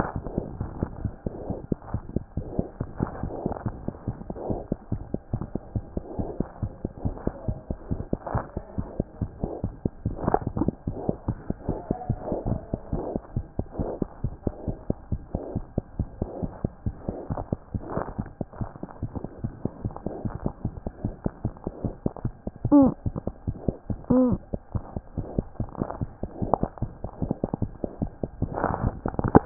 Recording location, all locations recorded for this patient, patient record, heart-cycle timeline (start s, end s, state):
pulmonary valve (PV)
pulmonary valve (PV)
#Age: Infant
#Sex: Female
#Height: 63.0 cm
#Weight: 6.3 kg
#Pregnancy status: False
#Murmur: Absent
#Murmur locations: nan
#Most audible location: nan
#Systolic murmur timing: nan
#Systolic murmur shape: nan
#Systolic murmur grading: nan
#Systolic murmur pitch: nan
#Systolic murmur quality: nan
#Diastolic murmur timing: nan
#Diastolic murmur shape: nan
#Diastolic murmur grading: nan
#Diastolic murmur pitch: nan
#Diastolic murmur quality: nan
#Outcome: Abnormal
#Campaign: 2014 screening campaign
0.00	12.92	unannotated
12.92	13.04	S1
13.04	13.12	systole
13.12	13.22	S2
13.22	13.34	diastole
13.34	13.46	S1
13.46	13.56	systole
13.56	13.66	S2
13.66	13.78	diastole
13.78	13.90	S1
13.90	14.00	systole
14.00	14.08	S2
14.08	14.22	diastole
14.22	14.34	S1
14.34	14.44	systole
14.44	14.54	S2
14.54	14.66	diastole
14.66	14.78	S1
14.78	14.88	systole
14.88	14.96	S2
14.96	15.10	diastole
15.10	15.22	S1
15.22	15.32	systole
15.32	15.42	S2
15.42	15.54	diastole
15.54	15.64	S1
15.64	15.76	systole
15.76	15.84	S2
15.84	15.98	diastole
15.98	16.08	S1
16.08	16.20	systole
16.20	16.28	S2
16.28	16.42	diastole
16.42	16.52	S1
16.52	16.62	systole
16.62	16.70	S2
16.70	16.86	diastole
16.86	16.96	S1
16.96	17.06	systole
17.06	17.16	S2
17.16	17.30	diastole
17.30	17.38	S1
17.38	17.52	systole
17.52	17.60	S2
17.60	17.74	diastole
17.74	17.84	S1
17.84	17.94	systole
17.94	18.04	S2
18.04	18.20	diastole
18.20	18.28	S1
18.28	18.42	systole
18.42	18.48	S2
18.48	18.60	diastole
18.60	18.70	S1
18.70	18.80	systole
18.80	18.90	S2
18.90	19.04	diastole
19.04	19.10	S1
19.10	19.18	systole
19.18	19.28	S2
19.28	19.44	diastole
19.44	19.52	S1
19.52	19.66	systole
19.66	19.72	S2
19.72	19.84	diastole
19.84	19.94	S1
19.94	20.04	systole
20.04	20.14	S2
20.14	20.26	diastole
20.26	20.34	S1
20.34	20.44	systole
20.44	20.52	S2
20.52	20.64	diastole
20.64	20.74	S1
20.74	20.86	systole
20.86	20.90	S2
20.90	21.04	diastole
21.04	21.14	S1
21.14	21.26	systole
21.26	21.32	S2
21.32	21.44	diastole
21.44	21.54	S1
21.54	21.66	systole
21.66	21.72	S2
21.72	21.84	diastole
21.84	21.94	S1
21.94	22.06	systole
22.06	22.14	S2
22.14	22.25	diastole
22.25	29.46	unannotated